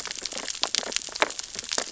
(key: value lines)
label: biophony, sea urchins (Echinidae)
recorder: SoundTrap 600 or HydroMoth